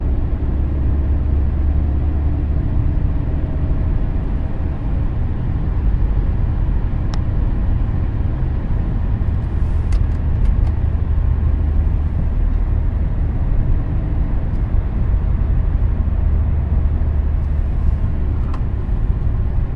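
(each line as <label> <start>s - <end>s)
Low, continuous, and steady engine hum. 0.0s - 19.8s
A short, rhythmic ticking noise. 9.8s - 11.2s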